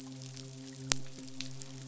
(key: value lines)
label: biophony, midshipman
recorder: SoundTrap 500